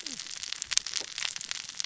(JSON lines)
{"label": "biophony, cascading saw", "recorder": "SoundTrap 600 or HydroMoth"}